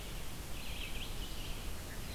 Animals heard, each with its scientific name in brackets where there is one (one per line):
Red-eyed Vireo (Vireo olivaceus)